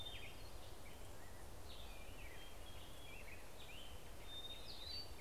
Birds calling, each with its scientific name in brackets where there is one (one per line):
Hermit Thrush (Catharus guttatus)
Black-headed Grosbeak (Pheucticus melanocephalus)